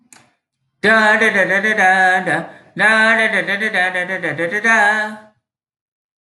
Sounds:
Sigh